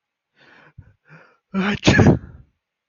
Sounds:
Sneeze